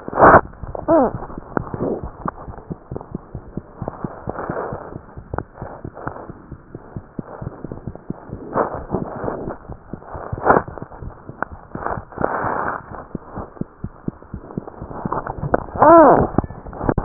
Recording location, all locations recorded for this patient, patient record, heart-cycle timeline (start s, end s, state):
mitral valve (MV)
aortic valve (AV)+pulmonary valve (PV)+tricuspid valve (TV)+mitral valve (MV)
#Age: Infant
#Sex: Male
#Height: 70.0 cm
#Weight: 8.45 kg
#Pregnancy status: False
#Murmur: Absent
#Murmur locations: nan
#Most audible location: nan
#Systolic murmur timing: nan
#Systolic murmur shape: nan
#Systolic murmur grading: nan
#Systolic murmur pitch: nan
#Systolic murmur quality: nan
#Diastolic murmur timing: nan
#Diastolic murmur shape: nan
#Diastolic murmur grading: nan
#Diastolic murmur pitch: nan
#Diastolic murmur quality: nan
#Outcome: Abnormal
#Campaign: 2015 screening campaign
0.00	2.34	unannotated
2.34	2.44	diastole
2.44	2.53	S1
2.53	2.68	systole
2.68	2.78	S2
2.78	2.90	diastole
2.90	3.00	S1
3.00	3.12	systole
3.12	3.20	S2
3.20	3.34	diastole
3.34	3.46	S1
3.46	3.54	systole
3.54	3.66	S2
3.66	3.79	diastole
3.79	3.88	S1
3.88	4.02	systole
4.02	4.11	S2
4.11	4.26	diastole
4.26	4.36	S1
4.36	4.48	systole
4.48	4.54	S2
4.54	4.70	diastole
4.70	4.80	S1
4.80	4.90	systole
4.90	5.00	S2
5.00	5.14	diastole
5.14	5.22	S1
5.22	5.31	systole
5.31	5.41	S2
5.41	5.60	diastole
5.60	5.70	S1
5.70	5.81	systole
5.81	5.91	S2
5.91	6.04	diastole
6.04	6.14	S1
6.14	6.24	systole
6.24	6.36	S2
6.36	6.49	diastole
6.49	6.59	S1
6.59	6.71	systole
6.71	6.78	S2
6.78	6.93	diastole
6.93	7.01	S1
7.01	7.16	systole
7.16	7.23	S2
7.23	7.40	diastole
7.40	7.54	S1
7.54	7.62	systole
7.62	7.72	S2
7.72	7.85	diastole
7.85	7.94	S1
7.94	8.07	systole
8.07	8.16	S2
8.16	8.31	diastole
8.31	17.04	unannotated